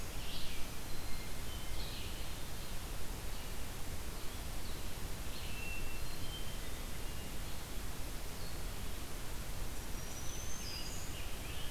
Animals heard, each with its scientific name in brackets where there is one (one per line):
Scarlet Tanager (Piranga olivacea)
Red-eyed Vireo (Vireo olivaceus)
Black-throated Green Warbler (Setophaga virens)
Hermit Thrush (Catharus guttatus)